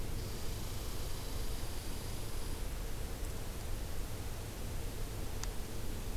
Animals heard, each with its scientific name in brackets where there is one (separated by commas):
Red Squirrel (Tamiasciurus hudsonicus)